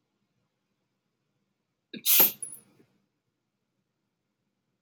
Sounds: Sneeze